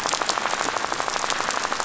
{"label": "biophony, rattle", "recorder": "SoundTrap 500"}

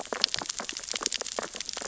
{"label": "biophony, sea urchins (Echinidae)", "recorder": "SoundTrap 600 or HydroMoth"}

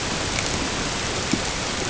{"label": "ambient", "recorder": "HydroMoth"}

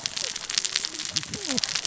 {"label": "biophony, cascading saw", "recorder": "SoundTrap 600 or HydroMoth"}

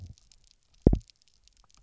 {"label": "biophony, double pulse", "recorder": "SoundTrap 300"}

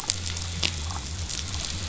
{"label": "biophony", "recorder": "SoundTrap 500"}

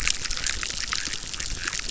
{"label": "biophony, chorus", "recorder": "SoundTrap 600"}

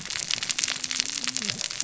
{"label": "biophony, cascading saw", "recorder": "SoundTrap 600 or HydroMoth"}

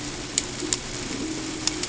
{"label": "ambient", "recorder": "HydroMoth"}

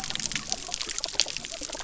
{"label": "biophony", "recorder": "SoundTrap 300"}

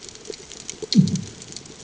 {"label": "anthrophony, bomb", "recorder": "HydroMoth"}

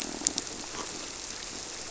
{"label": "biophony, squirrelfish (Holocentrus)", "recorder": "SoundTrap 300"}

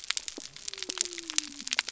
{"label": "biophony", "recorder": "SoundTrap 300"}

